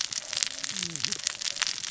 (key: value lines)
label: biophony, cascading saw
recorder: SoundTrap 600 or HydroMoth